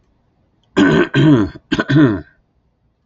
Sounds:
Throat clearing